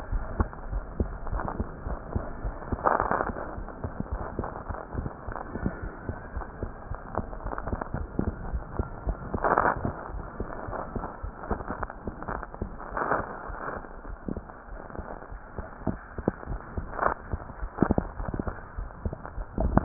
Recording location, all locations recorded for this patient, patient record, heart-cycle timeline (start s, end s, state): aortic valve (AV)
aortic valve (AV)+pulmonary valve (PV)+tricuspid valve (TV)+mitral valve (MV)
#Age: Child
#Sex: Female
#Height: 87.0 cm
#Weight: 10.2 kg
#Pregnancy status: False
#Murmur: Absent
#Murmur locations: nan
#Most audible location: nan
#Systolic murmur timing: nan
#Systolic murmur shape: nan
#Systolic murmur grading: nan
#Systolic murmur pitch: nan
#Systolic murmur quality: nan
#Diastolic murmur timing: nan
#Diastolic murmur shape: nan
#Diastolic murmur grading: nan
#Diastolic murmur pitch: nan
#Diastolic murmur quality: nan
#Outcome: Normal
#Campaign: 2015 screening campaign
0.00	5.77	unannotated
5.77	5.82	diastole
5.82	5.88	S1
5.88	6.08	systole
6.08	6.12	S2
6.12	6.34	diastole
6.34	6.43	S1
6.43	6.61	systole
6.61	6.66	S2
6.66	6.90	diastole
6.90	6.95	S1
6.95	7.16	systole
7.16	7.21	S2
7.21	7.45	diastole
7.45	7.51	S1
7.51	7.72	systole
7.72	7.76	S2
7.76	7.99	diastole
7.99	8.07	S1
8.07	8.26	systole
8.26	8.32	S2
8.32	8.53	diastole
8.53	8.60	S1
8.60	8.78	systole
8.78	8.83	S2
8.83	9.06	diastole
9.06	9.13	S1
9.13	9.32	systole
9.32	19.84	unannotated